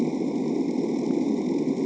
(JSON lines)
{"label": "anthrophony, boat engine", "recorder": "HydroMoth"}